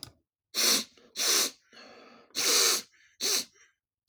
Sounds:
Sniff